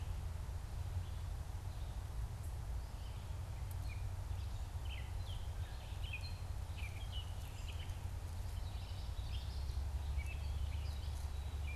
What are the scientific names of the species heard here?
Dumetella carolinensis, Vireo olivaceus, Geothlypis trichas